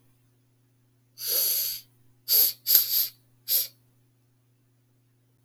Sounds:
Sniff